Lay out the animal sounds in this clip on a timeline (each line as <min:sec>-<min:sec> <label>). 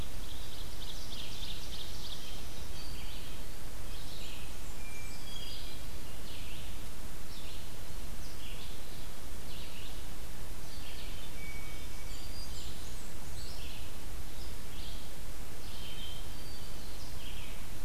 0:00.0-0:02.4 Ovenbird (Seiurus aurocapilla)
0:00.0-0:17.8 Red-eyed Vireo (Vireo olivaceus)
0:01.9-0:03.4 Black-throated Green Warbler (Setophaga virens)
0:03.7-0:05.3 Blackburnian Warbler (Setophaga fusca)
0:04.7-0:06.1 Hermit Thrush (Catharus guttatus)
0:11.3-0:12.8 Black-throated Green Warbler (Setophaga virens)
0:11.3-0:12.4 Hermit Thrush (Catharus guttatus)
0:12.0-0:13.6 Blackburnian Warbler (Setophaga fusca)
0:15.9-0:17.1 Hermit Thrush (Catharus guttatus)